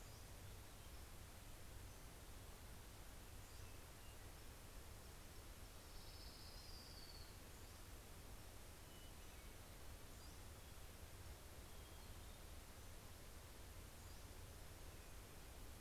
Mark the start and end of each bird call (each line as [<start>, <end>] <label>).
[0.00, 0.77] Pacific-slope Flycatcher (Empidonax difficilis)
[2.87, 4.47] Pacific-slope Flycatcher (Empidonax difficilis)
[4.67, 8.47] Orange-crowned Warbler (Leiothlypis celata)
[8.37, 10.37] Hermit Thrush (Catharus guttatus)
[9.57, 11.47] Pacific-slope Flycatcher (Empidonax difficilis)
[11.17, 13.17] Hermit Thrush (Catharus guttatus)
[13.57, 14.67] Pacific-slope Flycatcher (Empidonax difficilis)